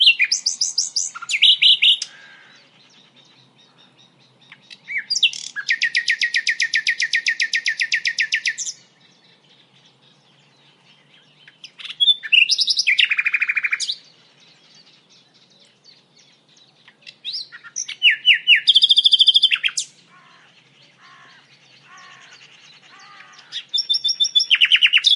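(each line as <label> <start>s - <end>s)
A bird twittering rhythmically. 0.0s - 2.3s
Very quiet and muffled bird twittering in the background. 0.0s - 25.2s
A bird, possibly a crow, caws once quietly in the background. 1.9s - 2.8s
A bird is twittering rapidly. 4.4s - 8.9s
A bird twittering rhythmically. 11.5s - 14.1s
A bird twittering, starting slowly and then becoming faster. 16.9s - 20.0s
A bird, possibly a crow, caws four times, steadily getting louder. 19.7s - 23.4s
A bird twittering first slowly and then rapidly. 23.4s - 25.2s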